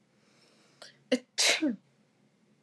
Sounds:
Sneeze